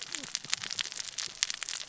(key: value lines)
label: biophony, cascading saw
recorder: SoundTrap 600 or HydroMoth